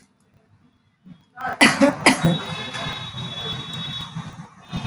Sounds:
Cough